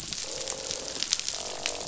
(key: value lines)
label: biophony, croak
recorder: SoundTrap 500